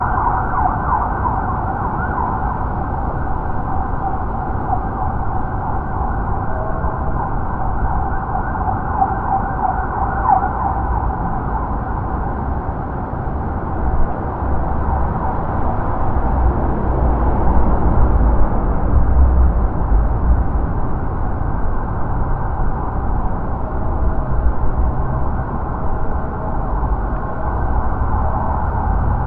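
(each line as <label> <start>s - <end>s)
A police siren with varying volume and pitch over background traffic and wind noises. 0.0s - 29.3s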